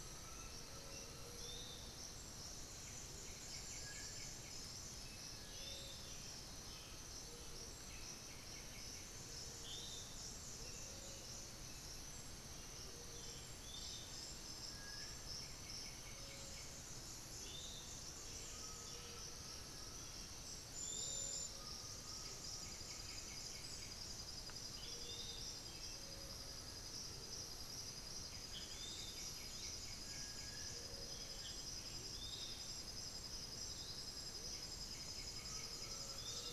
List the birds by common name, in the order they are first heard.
Undulated Tinamou, Black-billed Thrush, Piratic Flycatcher, White-winged Becard, Little Tinamou